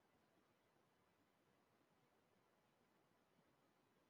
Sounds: Sniff